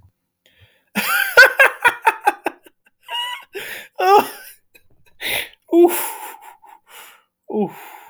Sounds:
Laughter